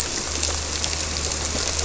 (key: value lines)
label: anthrophony, boat engine
recorder: SoundTrap 300